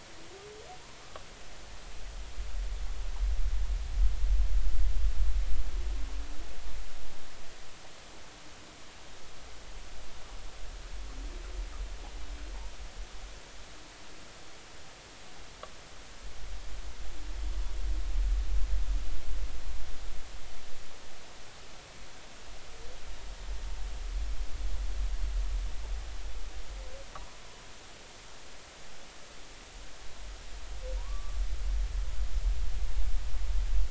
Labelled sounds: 31.0	31.4	humpback whale, 0.90 to 1.2 kHz

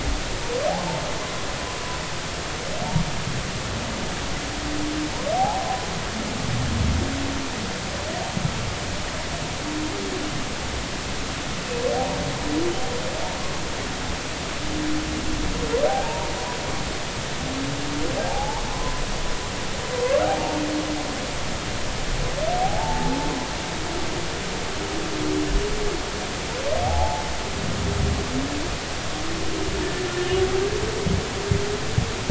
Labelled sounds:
5.3	5.7	humpback whale, 0.80 to 1.0 kHz
15.9	16.3	humpback whale, 0.80 to 0.99 kHz
18.3	19.0	humpback whale, 0.80 to 1.2 kHz
22.6	23.2	humpback whale, 0.80 to 0.96 kHz
26.8	27.2	humpback whale, 0.80 to 0.93 kHz

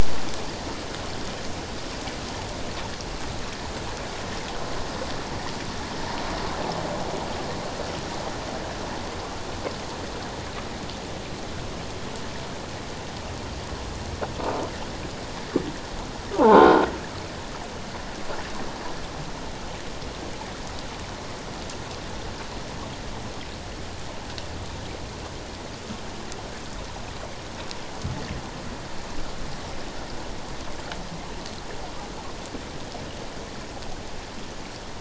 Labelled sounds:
16.4	16.9	croaking sound likely from a nearby submerged object, 0.78 to 1.6 kHz

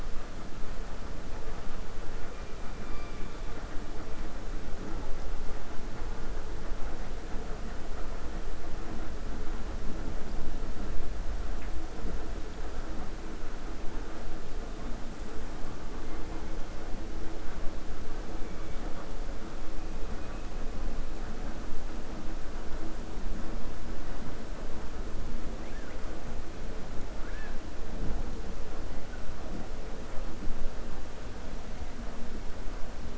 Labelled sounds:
2.8	3.3	killer whale, 1.4 to 2.9 kHz
27.1	27.6	killer whale, 1.3 to 3.5 kHz

